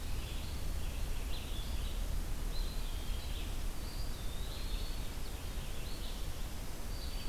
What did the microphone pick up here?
Winter Wren, Red-eyed Vireo, Eastern Wood-Pewee, Black-throated Green Warbler